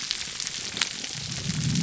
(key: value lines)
label: biophony
recorder: SoundTrap 300